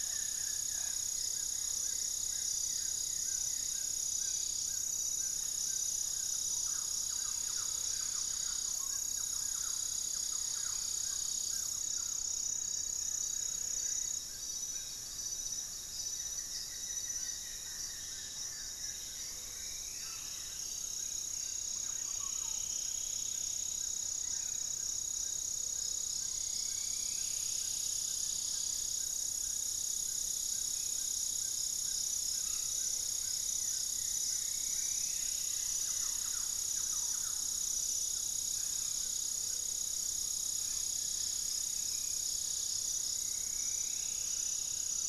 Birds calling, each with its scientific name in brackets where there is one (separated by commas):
Plain-winged Antshrike (Thamnophilus schistaceus), Gray-fronted Dove (Leptotila rufaxilla), Yellow-margined Flycatcher (Tolmomyias assimilis), Amazonian Trogon (Trogon ramonianus), Black-faced Antthrush (Formicarius analis), Striped Woodcreeper (Xiphorhynchus obsoletus), Goeldi's Antbird (Akletos goeldii), Buff-throated Woodcreeper (Xiphorhynchus guttatus), Thrush-like Wren (Campylorhynchus turdinus), Yellow-rumped Cacique (Cacicus cela)